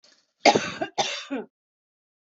{"expert_labels": [{"quality": "good", "cough_type": "wet", "dyspnea": false, "wheezing": false, "stridor": false, "choking": false, "congestion": false, "nothing": true, "diagnosis": "healthy cough", "severity": "pseudocough/healthy cough"}]}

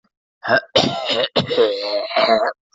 {"expert_labels": [{"quality": "ok", "cough_type": "unknown", "dyspnea": false, "wheezing": false, "stridor": false, "choking": false, "congestion": false, "nothing": true, "diagnosis": "healthy cough", "severity": "pseudocough/healthy cough"}], "age": 33, "gender": "male", "respiratory_condition": false, "fever_muscle_pain": false, "status": "COVID-19"}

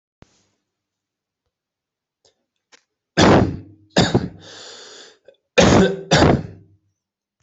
{"expert_labels": [{"quality": "good", "cough_type": "dry", "dyspnea": false, "wheezing": false, "stridor": false, "choking": false, "congestion": false, "nothing": true, "diagnosis": "COVID-19", "severity": "mild"}], "age": 33, "gender": "male", "respiratory_condition": false, "fever_muscle_pain": false, "status": "healthy"}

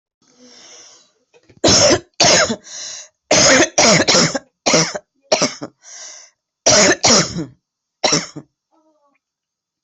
{"expert_labels": [{"quality": "good", "cough_type": "wet", "dyspnea": false, "wheezing": false, "stridor": false, "choking": false, "congestion": false, "nothing": true, "diagnosis": "lower respiratory tract infection", "severity": "severe"}], "age": 38, "gender": "female", "respiratory_condition": true, "fever_muscle_pain": false, "status": "symptomatic"}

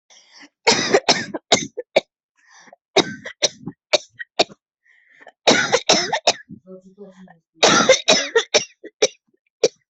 {"expert_labels": [{"quality": "ok", "cough_type": "dry", "dyspnea": false, "wheezing": true, "stridor": false, "choking": false, "congestion": false, "nothing": false, "diagnosis": "COVID-19", "severity": "mild"}], "age": 23, "gender": "female", "respiratory_condition": false, "fever_muscle_pain": false, "status": "healthy"}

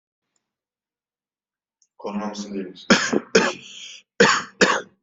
{"expert_labels": [{"quality": "good", "cough_type": "dry", "dyspnea": true, "wheezing": false, "stridor": false, "choking": false, "congestion": false, "nothing": false, "diagnosis": "COVID-19", "severity": "mild"}], "age": 29, "gender": "male", "respiratory_condition": false, "fever_muscle_pain": false, "status": "symptomatic"}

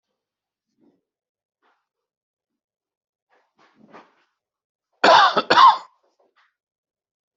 {"expert_labels": [{"quality": "good", "cough_type": "dry", "dyspnea": false, "wheezing": false, "stridor": false, "choking": false, "congestion": false, "nothing": true, "diagnosis": "healthy cough", "severity": "pseudocough/healthy cough"}], "age": 67, "gender": "male", "respiratory_condition": true, "fever_muscle_pain": false, "status": "healthy"}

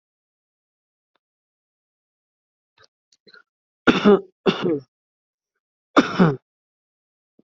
{"expert_labels": [{"quality": "good", "cough_type": "dry", "dyspnea": false, "wheezing": false, "stridor": false, "choking": false, "congestion": false, "nothing": true, "diagnosis": "healthy cough", "severity": "pseudocough/healthy cough"}], "age": 30, "gender": "male", "respiratory_condition": true, "fever_muscle_pain": false, "status": "healthy"}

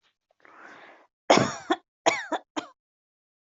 {"expert_labels": [{"quality": "good", "cough_type": "dry", "dyspnea": false, "wheezing": false, "stridor": false, "choking": false, "congestion": false, "nothing": true, "diagnosis": "upper respiratory tract infection", "severity": "mild"}], "age": 39, "gender": "female", "respiratory_condition": false, "fever_muscle_pain": false, "status": "healthy"}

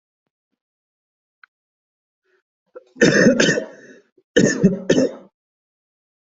{"expert_labels": [{"quality": "ok", "cough_type": "unknown", "dyspnea": false, "wheezing": false, "stridor": false, "choking": false, "congestion": false, "nothing": true, "diagnosis": "lower respiratory tract infection", "severity": "mild"}, {"quality": "good", "cough_type": "dry", "dyspnea": false, "wheezing": false, "stridor": false, "choking": false, "congestion": false, "nothing": true, "diagnosis": "COVID-19", "severity": "mild"}, {"quality": "good", "cough_type": "wet", "dyspnea": false, "wheezing": false, "stridor": false, "choking": false, "congestion": false, "nothing": true, "diagnosis": "upper respiratory tract infection", "severity": "mild"}, {"quality": "good", "cough_type": "wet", "dyspnea": false, "wheezing": false, "stridor": false, "choking": false, "congestion": false, "nothing": true, "diagnosis": "lower respiratory tract infection", "severity": "mild"}], "gender": "female", "respiratory_condition": false, "fever_muscle_pain": false, "status": "COVID-19"}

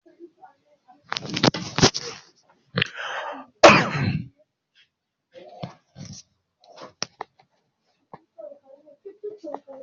{"expert_labels": [{"quality": "poor", "cough_type": "unknown", "dyspnea": false, "wheezing": false, "stridor": false, "choking": false, "congestion": false, "nothing": true, "diagnosis": "healthy cough", "severity": "pseudocough/healthy cough"}]}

